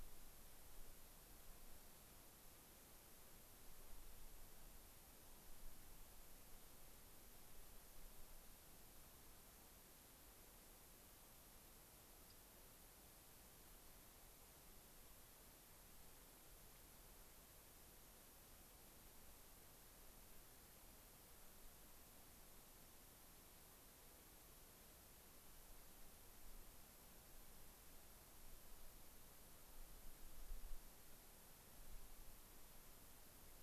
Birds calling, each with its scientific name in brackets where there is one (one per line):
unidentified bird